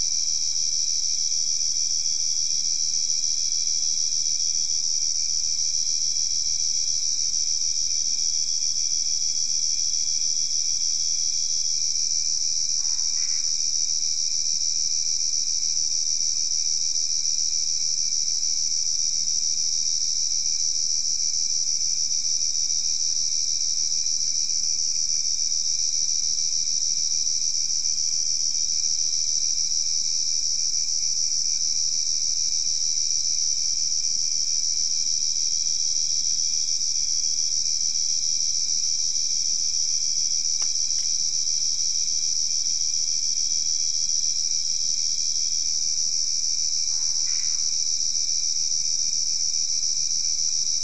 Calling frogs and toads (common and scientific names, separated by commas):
Boana albopunctata